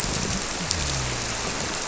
{"label": "biophony", "recorder": "SoundTrap 300"}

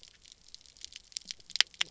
{"label": "biophony, knock croak", "recorder": "SoundTrap 300"}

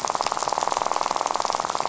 {"label": "biophony, rattle", "recorder": "SoundTrap 500"}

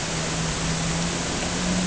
{"label": "anthrophony, boat engine", "recorder": "HydroMoth"}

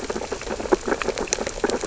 {"label": "biophony, sea urchins (Echinidae)", "recorder": "SoundTrap 600 or HydroMoth"}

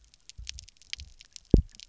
{"label": "biophony, double pulse", "recorder": "SoundTrap 300"}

